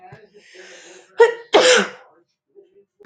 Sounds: Sneeze